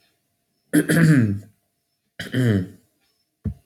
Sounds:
Throat clearing